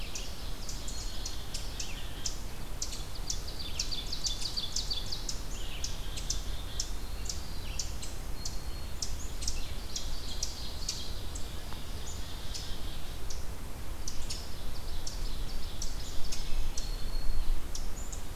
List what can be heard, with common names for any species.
Ovenbird, Red-eyed Vireo, Black-capped Chickadee, Black-throated Blue Warbler, Black-throated Green Warbler, Hermit Thrush